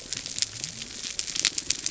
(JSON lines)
{"label": "biophony", "recorder": "SoundTrap 300"}